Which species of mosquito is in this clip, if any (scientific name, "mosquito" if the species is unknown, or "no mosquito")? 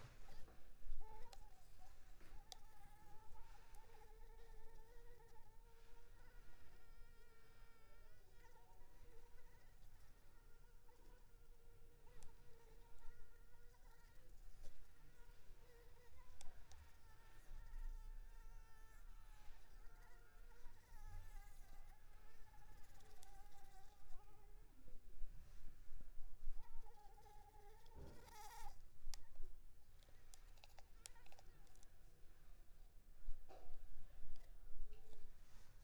Anopheles arabiensis